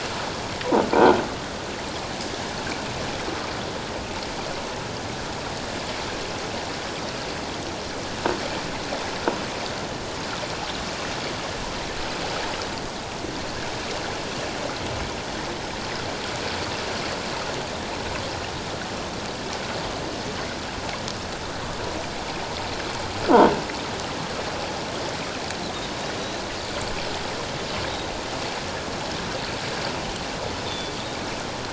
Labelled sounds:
30.7	30.9	Pacific white-sided dolphin, 3.4 to 3.7 kHz

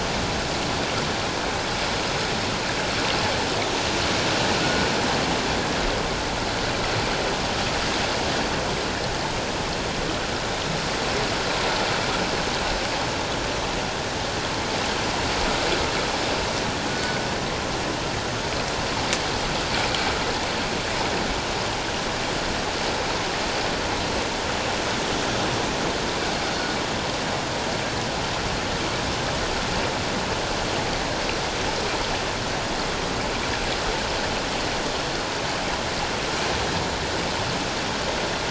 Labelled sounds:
4.6	4.9	killer whale, northern resident, G clan, 1.4 to 1.5 kHz
16.9	17.2	killer whale, northern resident, G clan, 1.4 to 1.6 kHz

